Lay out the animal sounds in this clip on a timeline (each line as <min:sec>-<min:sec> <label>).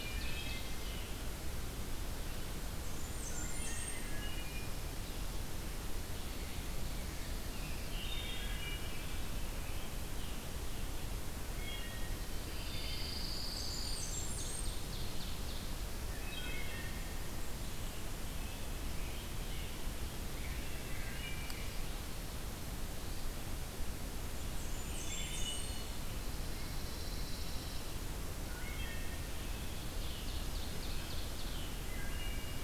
0:00.0-0:00.8 Wood Thrush (Hylocichla mustelina)
0:00.0-0:01.1 Ovenbird (Seiurus aurocapilla)
0:02.7-0:04.1 Blackburnian Warbler (Setophaga fusca)
0:03.4-0:04.7 Wood Thrush (Hylocichla mustelina)
0:06.0-0:07.9 Ovenbird (Seiurus aurocapilla)
0:07.3-0:10.6 Scarlet Tanager (Piranga olivacea)
0:07.9-0:08.9 Wood Thrush (Hylocichla mustelina)
0:11.6-0:13.4 Wood Thrush (Hylocichla mustelina)
0:12.4-0:14.1 Pine Warbler (Setophaga pinus)
0:13.4-0:16.0 Ovenbird (Seiurus aurocapilla)
0:13.4-0:14.8 Blackburnian Warbler (Setophaga fusca)
0:15.8-0:17.0 Wood Thrush (Hylocichla mustelina)
0:17.6-0:20.5 Scarlet Tanager (Piranga olivacea)
0:20.3-0:21.7 Wood Thrush (Hylocichla mustelina)
0:24.1-0:25.9 Blackburnian Warbler (Setophaga fusca)
0:24.8-0:26.1 Wood Thrush (Hylocichla mustelina)
0:25.9-0:27.9 Pine Warbler (Setophaga pinus)
0:28.4-0:29.7 Wood Thrush (Hylocichla mustelina)
0:29.1-0:31.8 Scarlet Tanager (Piranga olivacea)
0:29.3-0:31.8 Ovenbird (Seiurus aurocapilla)
0:31.8-0:32.6 Wood Thrush (Hylocichla mustelina)